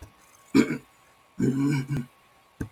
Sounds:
Throat clearing